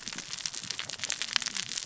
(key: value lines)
label: biophony, cascading saw
recorder: SoundTrap 600 or HydroMoth